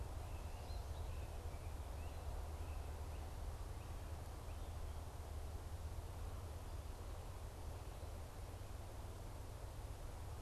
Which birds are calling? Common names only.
American Goldfinch